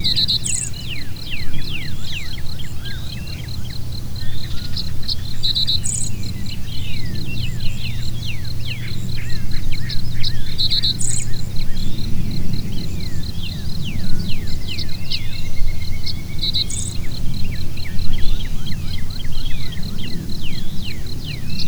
Is there an airplane in the background?
no